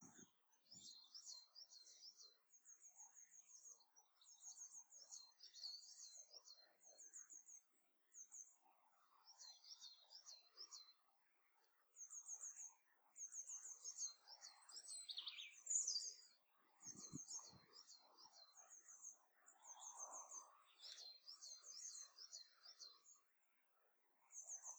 does the bird make more than one sound?
yes